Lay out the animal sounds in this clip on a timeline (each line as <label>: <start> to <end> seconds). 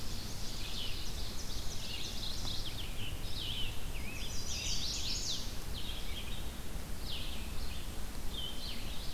Ovenbird (Seiurus aurocapilla): 0.0 to 2.7 seconds
Red-eyed Vireo (Vireo olivaceus): 0.0 to 9.1 seconds
Mourning Warbler (Geothlypis philadelphia): 1.7 to 2.9 seconds
Chestnut-sided Warbler (Setophaga pensylvanica): 4.0 to 5.5 seconds
Black-throated Blue Warbler (Setophaga caerulescens): 8.1 to 9.1 seconds